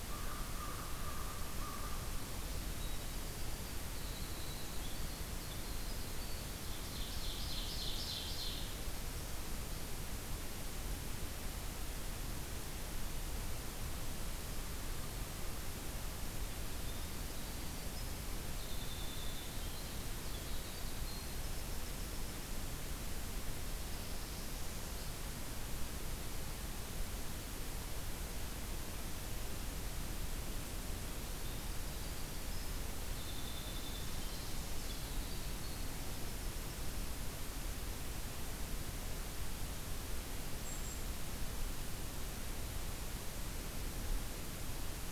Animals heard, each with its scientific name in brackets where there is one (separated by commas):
Ovenbird (Seiurus aurocapilla), Winter Wren (Troglodytes hiemalis), American Crow (Corvus brachyrhynchos), Golden-crowned Kinglet (Regulus satrapa), Northern Parula (Setophaga americana)